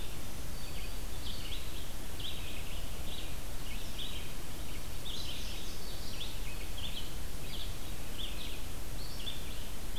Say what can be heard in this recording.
Black-throated Green Warbler, Red-eyed Vireo, Indigo Bunting